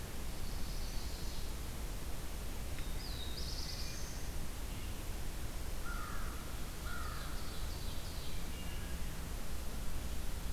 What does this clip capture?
Chestnut-sided Warbler, Black-throated Blue Warbler, American Crow, Ovenbird, Wood Thrush